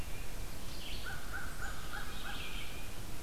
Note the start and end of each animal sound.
[0.00, 0.58] Tufted Titmouse (Baeolophus bicolor)
[0.00, 3.06] Red-eyed Vireo (Vireo olivaceus)
[0.91, 2.47] American Crow (Corvus brachyrhynchos)

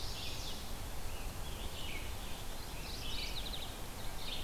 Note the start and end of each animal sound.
[0.00, 0.61] Chestnut-sided Warbler (Setophaga pensylvanica)
[0.00, 4.43] Red-eyed Vireo (Vireo olivaceus)
[0.88, 3.12] Scarlet Tanager (Piranga olivacea)
[2.43, 4.01] Mourning Warbler (Geothlypis philadelphia)
[3.75, 4.43] Ovenbird (Seiurus aurocapilla)

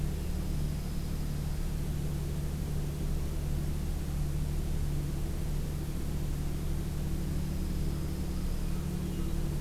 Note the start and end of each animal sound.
[0.00, 1.78] Dark-eyed Junco (Junco hyemalis)
[7.06, 8.75] Dark-eyed Junco (Junco hyemalis)

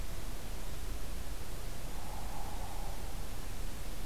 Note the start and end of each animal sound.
[1.65, 3.32] Hairy Woodpecker (Dryobates villosus)

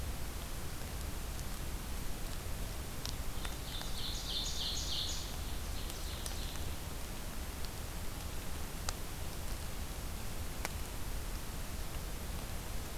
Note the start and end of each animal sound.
[3.32, 6.76] Ovenbird (Seiurus aurocapilla)

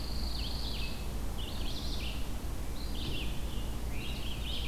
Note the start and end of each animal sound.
[0.00, 1.02] Pine Warbler (Setophaga pinus)
[0.00, 4.67] Red-eyed Vireo (Vireo olivaceus)
[3.37, 4.67] Scarlet Tanager (Piranga olivacea)

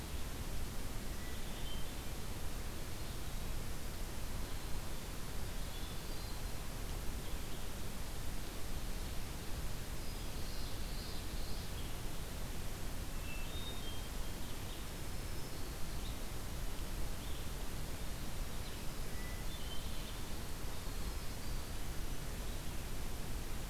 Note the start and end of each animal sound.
[0.00, 20.24] Red-eyed Vireo (Vireo olivaceus)
[1.07, 2.15] Hermit Thrush (Catharus guttatus)
[5.60, 6.57] Hermit Thrush (Catharus guttatus)
[9.87, 10.40] Hermit Thrush (Catharus guttatus)
[10.31, 11.81] Common Yellowthroat (Geothlypis trichas)
[13.02, 14.05] Hermit Thrush (Catharus guttatus)
[14.72, 16.03] Black-throated Green Warbler (Setophaga virens)
[18.96, 20.05] Hermit Thrush (Catharus guttatus)

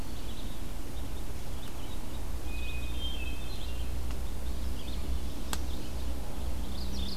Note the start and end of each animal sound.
[0.00, 7.16] Red-eyed Vireo (Vireo olivaceus)
[2.43, 4.02] Hermit Thrush (Catharus guttatus)
[4.33, 5.20] Eastern Wood-Pewee (Contopus virens)
[6.57, 7.16] Mourning Warbler (Geothlypis philadelphia)

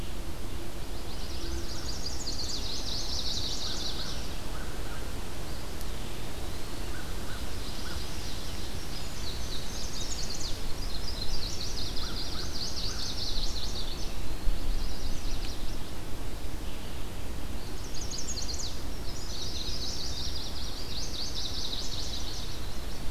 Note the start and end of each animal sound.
[0.62, 4.09] Chestnut-sided Warbler (Setophaga pensylvanica)
[3.56, 5.26] American Crow (Corvus brachyrhynchos)
[5.34, 6.98] Eastern Wood-Pewee (Contopus virens)
[6.56, 8.10] American Crow (Corvus brachyrhynchos)
[7.30, 8.80] Ovenbird (Seiurus aurocapilla)
[8.79, 10.20] Indigo Bunting (Passerina cyanea)
[9.64, 14.11] Chestnut-sided Warbler (Setophaga pensylvanica)
[11.74, 13.33] American Crow (Corvus brachyrhynchos)
[13.77, 14.64] Eastern Wood-Pewee (Contopus virens)
[14.45, 15.87] Chestnut-sided Warbler (Setophaga pensylvanica)
[17.70, 18.87] Chestnut-sided Warbler (Setophaga pensylvanica)
[18.99, 20.20] Indigo Bunting (Passerina cyanea)
[19.28, 23.10] Chestnut-sided Warbler (Setophaga pensylvanica)
[21.93, 23.10] Eastern Wood-Pewee (Contopus virens)

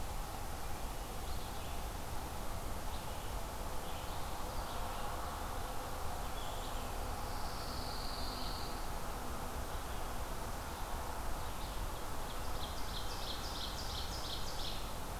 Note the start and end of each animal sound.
[0.00, 15.19] Red-eyed Vireo (Vireo olivaceus)
[7.15, 8.81] Pine Warbler (Setophaga pinus)
[11.70, 15.19] Ovenbird (Seiurus aurocapilla)

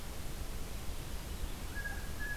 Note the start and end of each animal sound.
[1.59, 2.36] Blue Jay (Cyanocitta cristata)

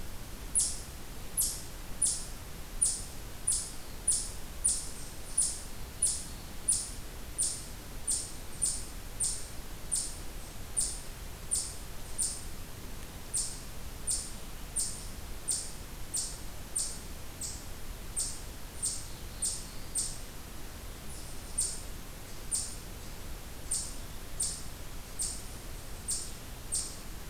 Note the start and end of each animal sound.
[1.86, 27.29] Eastern Chipmunk (Tamias striatus)
[18.94, 20.08] Black-throated Blue Warbler (Setophaga caerulescens)

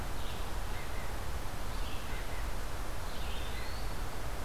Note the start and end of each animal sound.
[0.00, 4.45] Red-breasted Nuthatch (Sitta canadensis)
[0.00, 4.45] Red-eyed Vireo (Vireo olivaceus)
[2.92, 4.11] Eastern Wood-Pewee (Contopus virens)

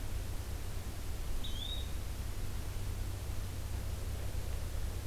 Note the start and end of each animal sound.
[1.30, 2.00] Yellow-bellied Flycatcher (Empidonax flaviventris)

